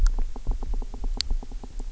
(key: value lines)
label: biophony, knock
recorder: SoundTrap 300